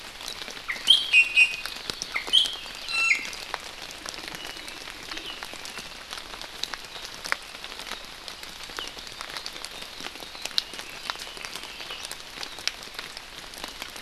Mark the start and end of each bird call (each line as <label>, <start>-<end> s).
Iiwi (Drepanis coccinea), 0.7-1.8 s
Iiwi (Drepanis coccinea), 2.1-3.3 s
Apapane (Himatione sanguinea), 2.6-3.4 s
Red-billed Leiothrix (Leiothrix lutea), 10.6-12.1 s